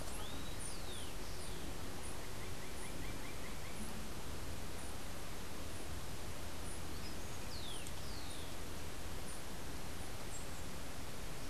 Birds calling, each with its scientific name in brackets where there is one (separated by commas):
Roadside Hawk (Rupornis magnirostris), Rufous-collared Sparrow (Zonotrichia capensis)